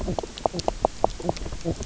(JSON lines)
{"label": "biophony, knock croak", "recorder": "SoundTrap 300"}